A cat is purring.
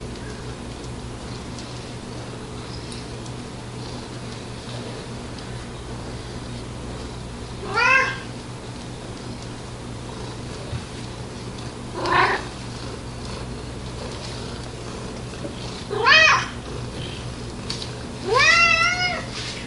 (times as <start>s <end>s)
10.3s 19.7s